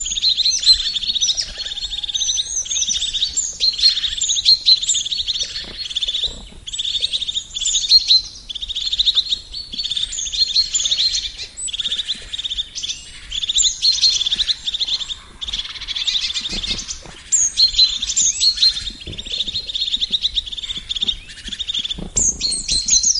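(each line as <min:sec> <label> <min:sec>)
0:00.0 A bird chirps clearly amid a loud environment with other birds. 0:23.2
0:16.2 A frog croaks loudly in an outdoor environment. 0:17.3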